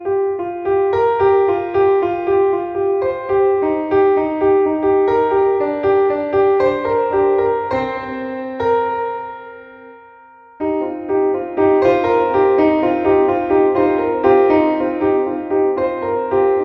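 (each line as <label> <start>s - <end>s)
A melancholic melody is played on an acoustic piano. 0.0s - 16.6s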